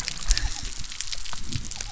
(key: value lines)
label: biophony
recorder: SoundTrap 300